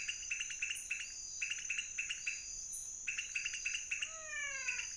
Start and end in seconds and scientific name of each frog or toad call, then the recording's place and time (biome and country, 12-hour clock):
0.0	4.9	Leptodactylus podicipinus
3.9	4.9	Physalaemus albonotatus
Cerrado, Brazil, 2:30am